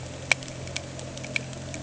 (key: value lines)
label: anthrophony, boat engine
recorder: HydroMoth